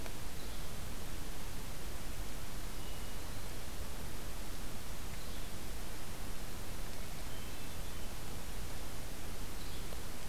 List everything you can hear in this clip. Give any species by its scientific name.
Empidonax flaviventris, Catharus guttatus